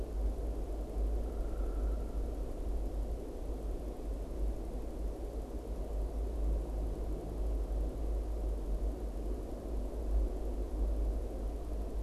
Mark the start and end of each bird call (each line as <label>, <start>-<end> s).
Downy Woodpecker (Dryobates pubescens), 1.0-2.5 s